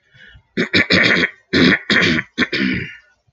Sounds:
Throat clearing